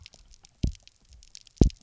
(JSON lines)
{"label": "biophony, double pulse", "recorder": "SoundTrap 300"}